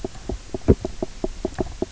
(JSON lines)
{"label": "biophony, knock croak", "recorder": "SoundTrap 300"}